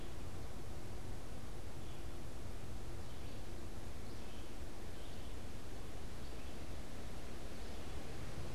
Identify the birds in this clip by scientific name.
Melospiza melodia